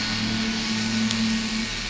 {"label": "anthrophony, boat engine", "recorder": "SoundTrap 500"}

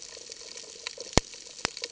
{"label": "ambient", "recorder": "HydroMoth"}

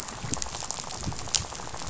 {"label": "biophony, rattle", "recorder": "SoundTrap 500"}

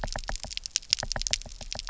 {"label": "biophony, knock", "recorder": "SoundTrap 300"}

